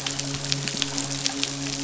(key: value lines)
label: biophony, midshipman
recorder: SoundTrap 500